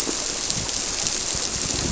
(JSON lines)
{"label": "biophony", "recorder": "SoundTrap 300"}